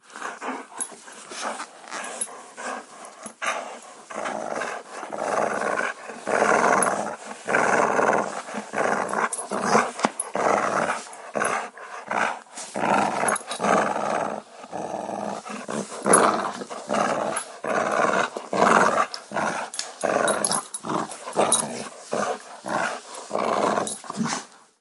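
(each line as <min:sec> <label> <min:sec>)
0:00.0 A dog pants rapidly nearby while its collar makes a sound. 0:04.2
0:04.3 A dog pants rapidly and angrily while its collar makes a sound. 0:24.8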